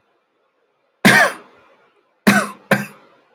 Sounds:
Cough